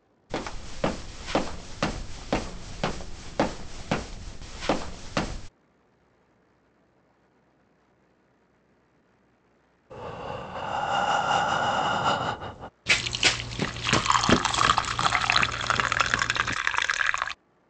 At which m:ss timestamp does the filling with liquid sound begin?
0:13